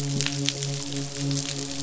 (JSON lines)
{"label": "biophony, midshipman", "recorder": "SoundTrap 500"}